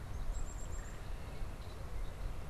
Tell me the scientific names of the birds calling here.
Poecile atricapillus, Melanerpes carolinus, Agelaius phoeniceus